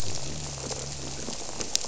{"label": "biophony", "recorder": "SoundTrap 300"}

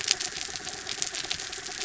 {"label": "anthrophony, mechanical", "recorder": "SoundTrap 300"}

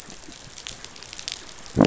{"label": "biophony", "recorder": "SoundTrap 500"}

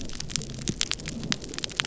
{"label": "biophony", "recorder": "SoundTrap 300"}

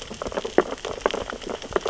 {"label": "biophony, sea urchins (Echinidae)", "recorder": "SoundTrap 600 or HydroMoth"}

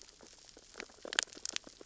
{"label": "biophony, sea urchins (Echinidae)", "recorder": "SoundTrap 600 or HydroMoth"}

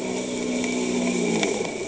{"label": "anthrophony, boat engine", "recorder": "HydroMoth"}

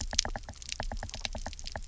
{"label": "biophony, knock", "recorder": "SoundTrap 300"}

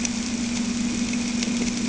{"label": "anthrophony, boat engine", "recorder": "HydroMoth"}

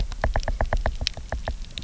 {"label": "biophony, knock", "recorder": "SoundTrap 300"}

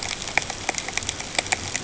{"label": "ambient", "recorder": "HydroMoth"}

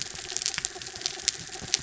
{"label": "anthrophony, mechanical", "recorder": "SoundTrap 300"}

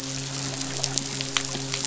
{"label": "biophony, midshipman", "recorder": "SoundTrap 500"}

